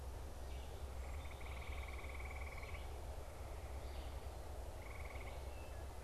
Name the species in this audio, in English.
Red-eyed Vireo, Wood Thrush